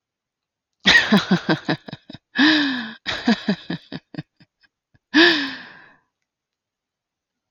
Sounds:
Laughter